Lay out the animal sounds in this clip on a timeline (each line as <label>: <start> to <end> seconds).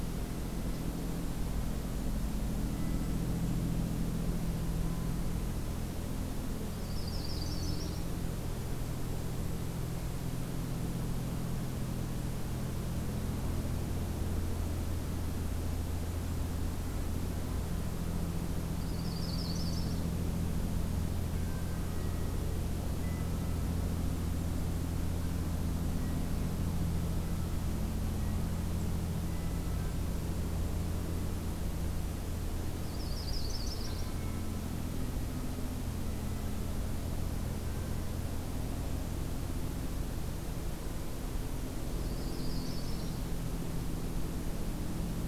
Golden-crowned Kinglet (Regulus satrapa): 2.3 to 3.6 seconds
Yellow-rumped Warbler (Setophaga coronata): 6.5 to 8.0 seconds
Golden-crowned Kinglet (Regulus satrapa): 8.0 to 10.3 seconds
Yellow-rumped Warbler (Setophaga coronata): 18.7 to 20.1 seconds
unidentified call: 21.3 to 22.3 seconds
unidentified call: 22.9 to 23.8 seconds
unidentified call: 29.2 to 30.0 seconds
Yellow-rumped Warbler (Setophaga coronata): 32.8 to 34.1 seconds
Yellow-rumped Warbler (Setophaga coronata): 41.8 to 43.2 seconds